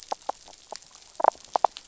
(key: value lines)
label: biophony, damselfish
recorder: SoundTrap 500

label: biophony
recorder: SoundTrap 500